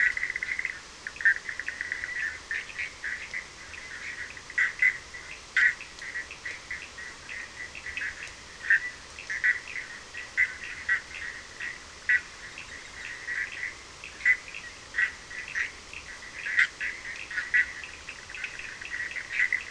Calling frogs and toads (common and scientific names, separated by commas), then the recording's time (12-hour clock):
Bischoff's tree frog (Boana bischoffi), Cochran's lime tree frog (Sphaenorhynchus surdus)
3:00am